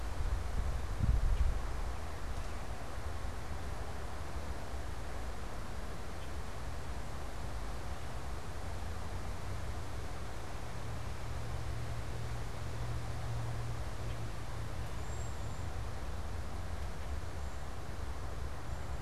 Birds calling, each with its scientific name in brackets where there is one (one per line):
Red-winged Blackbird (Agelaius phoeniceus)
Cedar Waxwing (Bombycilla cedrorum)